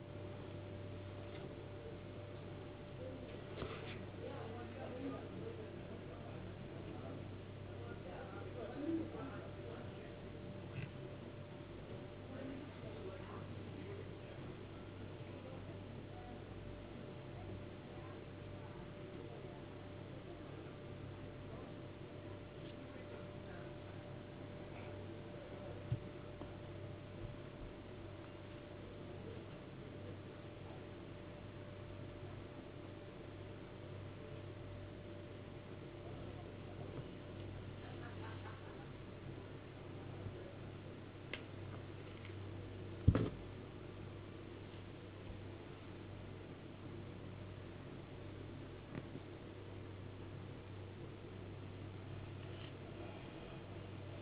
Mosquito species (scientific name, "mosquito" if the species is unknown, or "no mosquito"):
no mosquito